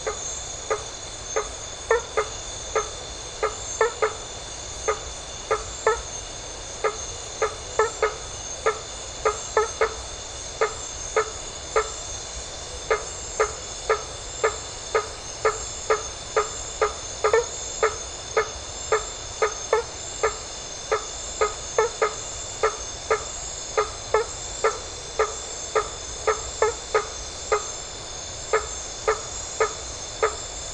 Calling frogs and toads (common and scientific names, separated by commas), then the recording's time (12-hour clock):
blacksmith tree frog (Boana faber)
9:15pm